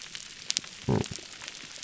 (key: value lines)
label: biophony
recorder: SoundTrap 300